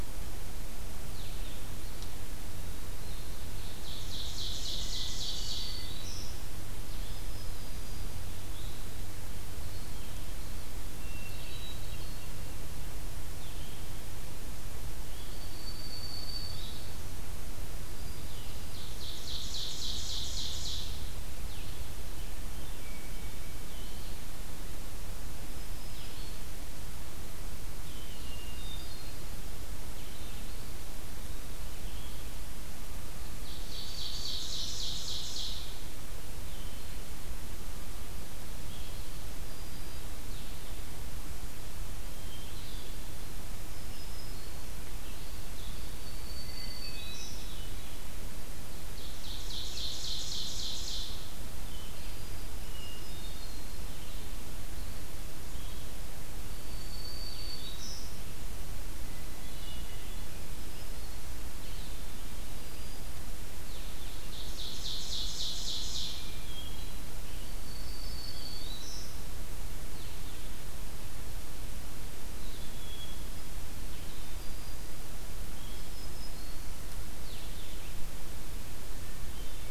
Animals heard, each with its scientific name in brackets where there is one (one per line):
Blue-headed Vireo (Vireo solitarius)
Hermit Thrush (Catharus guttatus)
Black-throated Green Warbler (Setophaga virens)
Ovenbird (Seiurus aurocapilla)
Eastern Wood-Pewee (Contopus virens)